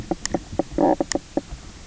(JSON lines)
{"label": "biophony, knock croak", "recorder": "SoundTrap 300"}